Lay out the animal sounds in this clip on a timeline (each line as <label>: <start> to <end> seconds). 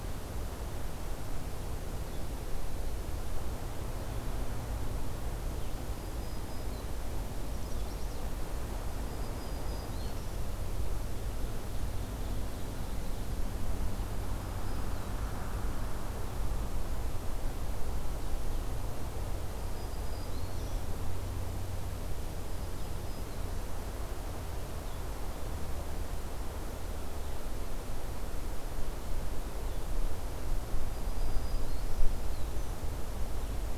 Black-throated Green Warbler (Setophaga virens): 5.9 to 6.9 seconds
Chestnut-sided Warbler (Setophaga pensylvanica): 7.4 to 8.3 seconds
Black-throated Green Warbler (Setophaga virens): 8.9 to 10.4 seconds
Ovenbird (Seiurus aurocapilla): 11.3 to 13.4 seconds
Black-throated Green Warbler (Setophaga virens): 14.1 to 15.1 seconds
Black-throated Green Warbler (Setophaga virens): 19.5 to 20.9 seconds
Black-throated Green Warbler (Setophaga virens): 22.3 to 23.5 seconds
Black-throated Green Warbler (Setophaga virens): 30.8 to 32.8 seconds